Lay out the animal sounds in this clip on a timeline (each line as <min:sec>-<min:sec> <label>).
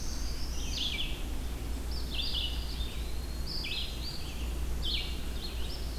0:00.0-0:01.1 Black-throated Blue Warbler (Setophaga caerulescens)
0:00.0-0:06.0 Red-eyed Vireo (Vireo olivaceus)
0:02.5-0:03.7 Eastern Wood-Pewee (Contopus virens)